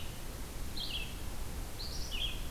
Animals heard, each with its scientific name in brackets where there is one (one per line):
Red-eyed Vireo (Vireo olivaceus)